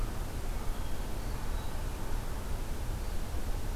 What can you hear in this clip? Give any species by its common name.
American Crow, Hermit Thrush